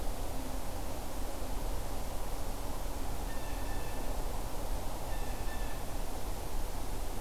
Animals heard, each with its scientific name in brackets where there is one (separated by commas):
Blue Jay (Cyanocitta cristata)